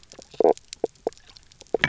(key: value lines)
label: biophony, knock croak
recorder: SoundTrap 300